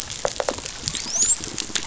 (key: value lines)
label: biophony, dolphin
recorder: SoundTrap 500